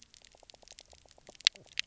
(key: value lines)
label: biophony, knock croak
recorder: SoundTrap 300